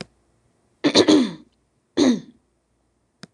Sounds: Throat clearing